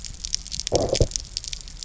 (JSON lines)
{"label": "biophony, low growl", "recorder": "SoundTrap 300"}